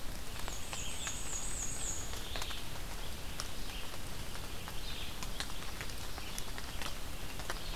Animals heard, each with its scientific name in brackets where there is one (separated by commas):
Black-and-white Warbler (Mniotilta varia), Red-eyed Vireo (Vireo olivaceus)